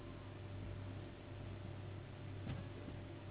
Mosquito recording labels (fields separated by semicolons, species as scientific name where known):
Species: Anopheles gambiae s.s.; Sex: female; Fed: unfed; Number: one; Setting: insect culture